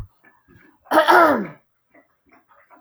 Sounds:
Throat clearing